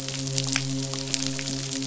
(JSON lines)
{"label": "biophony, midshipman", "recorder": "SoundTrap 500"}